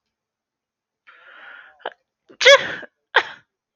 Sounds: Sneeze